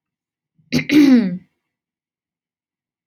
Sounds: Throat clearing